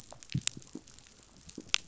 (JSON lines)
{"label": "biophony, pulse", "recorder": "SoundTrap 500"}